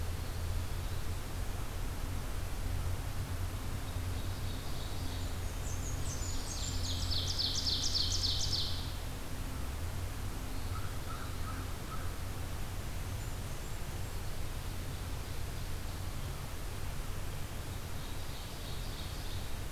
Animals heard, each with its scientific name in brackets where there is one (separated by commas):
Blackburnian Warbler (Setophaga fusca), American Crow (Corvus brachyrhynchos), Ovenbird (Seiurus aurocapilla)